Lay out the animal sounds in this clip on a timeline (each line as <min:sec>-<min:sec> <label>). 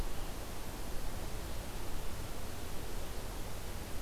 0:00.0-0:04.0 Red-eyed Vireo (Vireo olivaceus)